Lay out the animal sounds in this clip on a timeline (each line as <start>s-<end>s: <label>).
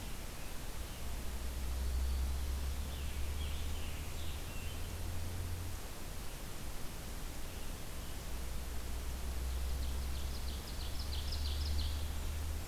1.7s-2.7s: Black-throated Green Warbler (Setophaga virens)
2.7s-5.2s: Scarlet Tanager (Piranga olivacea)
9.0s-12.4s: Ovenbird (Seiurus aurocapilla)